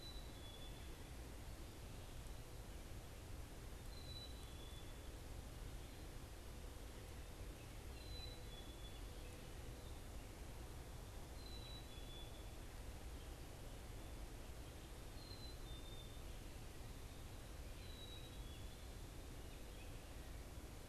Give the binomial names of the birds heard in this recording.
Poecile atricapillus, Turdus migratorius